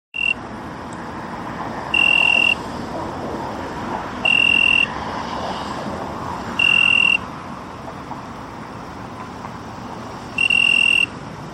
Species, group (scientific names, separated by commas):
Oecanthus pellucens, Orthoptera